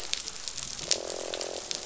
{"label": "biophony, croak", "recorder": "SoundTrap 500"}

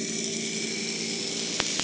{"label": "anthrophony, boat engine", "recorder": "HydroMoth"}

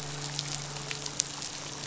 {"label": "biophony, midshipman", "recorder": "SoundTrap 500"}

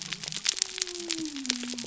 {"label": "biophony", "recorder": "SoundTrap 300"}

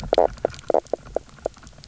{"label": "biophony, knock croak", "recorder": "SoundTrap 300"}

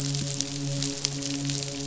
{"label": "biophony, midshipman", "recorder": "SoundTrap 500"}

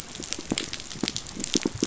{"label": "biophony, pulse", "recorder": "SoundTrap 500"}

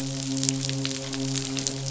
{"label": "biophony, midshipman", "recorder": "SoundTrap 500"}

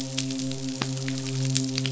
{"label": "biophony, midshipman", "recorder": "SoundTrap 500"}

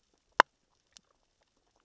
{"label": "biophony, grazing", "recorder": "SoundTrap 600 or HydroMoth"}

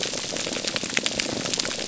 {"label": "biophony", "recorder": "SoundTrap 300"}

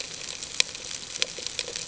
{"label": "ambient", "recorder": "HydroMoth"}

